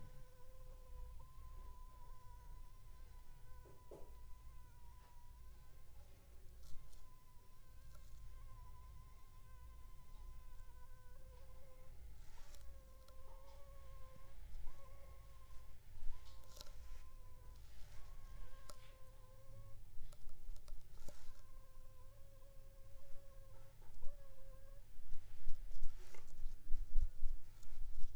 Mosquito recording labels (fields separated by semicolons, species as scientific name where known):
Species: Anopheles funestus s.s.; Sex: female; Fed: unfed; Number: one; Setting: cup